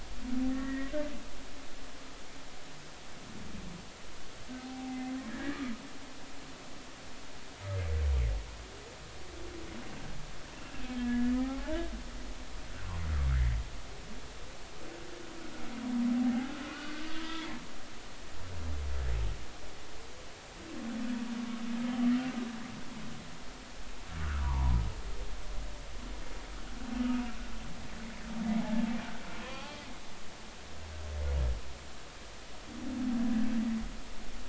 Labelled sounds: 1.5	1.9	humpback whale, 1.8 to 2.0 kHz
4.6	5.0	humpback whale, 0.80 to 0.90 kHz
5.3	5.6	humpback whale, 1.6 to 1.8 kHz
10.9	11.9	humpback whale, 0.80 to 1.8 kHz
16.7	17.5	humpback whale, 1.4 to 3.4 kHz
24.4	24.8	humpback whale, 0.83 to 1.2 kHz
29.4	29.8	humpback whale, 0.80 to 1.2 kHz

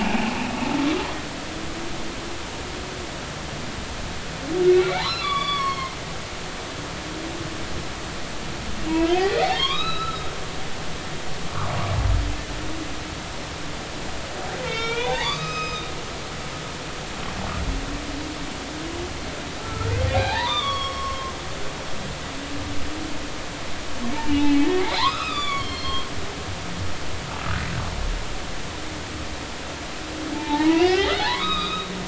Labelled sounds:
0.0	0.3	humpback whale, 0.80 to 2.6 kHz
4.7	6.0	humpback whale, 0.80 to 5.6 kHz
8.9	10.3	humpback whale, 0.99 to 4.0 kHz
14.7	15.9	humpback whale, 0.80 to 6.4 kHz
19.6	21.3	humpback whale, 0.80 to 5.5 kHz
24.2	26.1	humpback whale, 0.80 to 5.2 kHz
30.3	31.9	humpback whale, 0.80 to 5.1 kHz

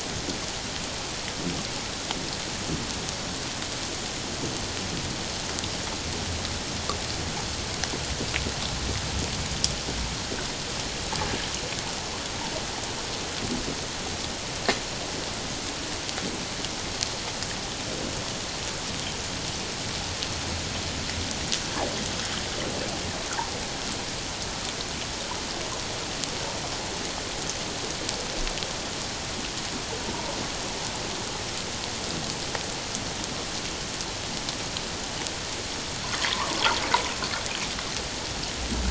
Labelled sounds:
30.1	30.4	water noise, 0.84 to 1.1 kHz
36.3	36.5	water noise, 0.84 to 1.3 kHz

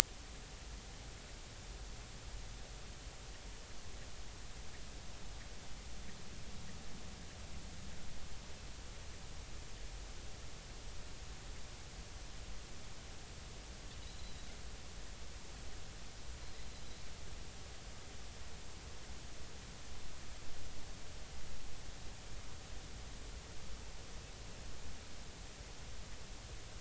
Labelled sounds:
14.0	14.5	Pacific white-sided dolphin, 3.7 to 4.1 kHz

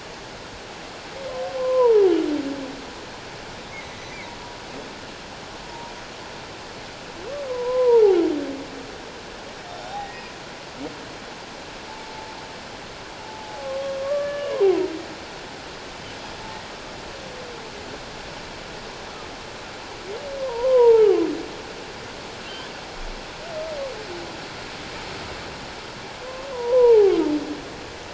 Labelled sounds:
1.5	2.1	humpback whale, 0.78 to 1.2 kHz
3.7	4.2	humpback whale, 1.9 to 6.1 kHz
5.6	5.9	humpback whale, 0.84 to 1.0 kHz
7.5	8.2	humpback whale, 0.78 to 1.1 kHz
9.7	10.3	humpback whale, 0.78 to 5.6 kHz
11.9	12.2	humpback whale, 0.81 to 0.94 kHz
13.2	13.7	humpback whale, 0.78 to 0.91 kHz
14.0	14.7	humpback whale, 0.94 to 3.0 kHz
20.4	21.3	humpback whale, 0.81 to 3.1 kHz
26.5	27.1	humpback whale, 0.78 to 1.1 kHz

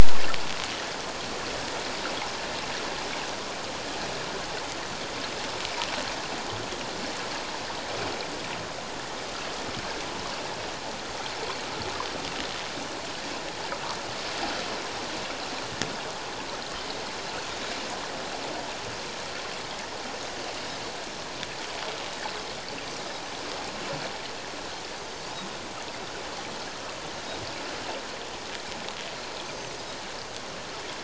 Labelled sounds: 29.4	29.7	Pacific white-sided dolphin, 5.8 to 6.4 kHz

